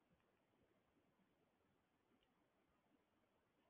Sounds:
Sneeze